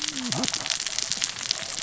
{"label": "biophony, cascading saw", "recorder": "SoundTrap 600 or HydroMoth"}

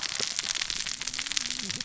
{"label": "biophony, cascading saw", "recorder": "SoundTrap 600 or HydroMoth"}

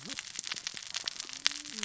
{"label": "biophony, cascading saw", "recorder": "SoundTrap 600 or HydroMoth"}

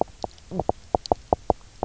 {"label": "biophony, knock croak", "recorder": "SoundTrap 300"}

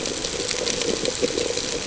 {"label": "ambient", "recorder": "HydroMoth"}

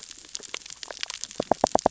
{"label": "biophony, knock", "recorder": "SoundTrap 600 or HydroMoth"}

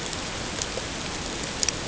{"label": "ambient", "recorder": "HydroMoth"}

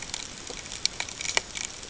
{"label": "ambient", "recorder": "HydroMoth"}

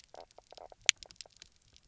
{"label": "biophony, knock croak", "recorder": "SoundTrap 300"}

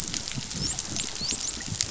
{"label": "biophony, dolphin", "recorder": "SoundTrap 500"}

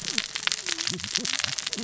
{"label": "biophony, cascading saw", "recorder": "SoundTrap 600 or HydroMoth"}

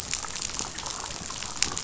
{"label": "biophony, damselfish", "recorder": "SoundTrap 500"}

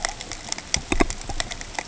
{"label": "ambient", "recorder": "HydroMoth"}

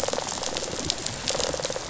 {"label": "biophony, rattle response", "recorder": "SoundTrap 500"}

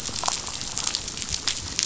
{"label": "biophony, damselfish", "recorder": "SoundTrap 500"}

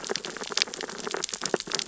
{"label": "biophony, sea urchins (Echinidae)", "recorder": "SoundTrap 600 or HydroMoth"}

